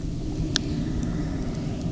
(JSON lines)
{"label": "anthrophony, boat engine", "recorder": "SoundTrap 300"}